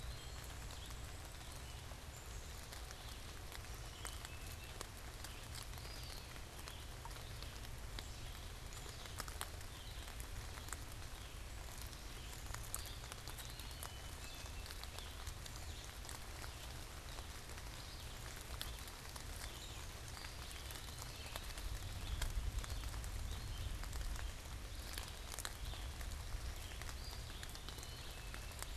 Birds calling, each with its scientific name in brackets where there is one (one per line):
Red-eyed Vireo (Vireo olivaceus)
Black-capped Chickadee (Poecile atricapillus)
unidentified bird
Eastern Wood-Pewee (Contopus virens)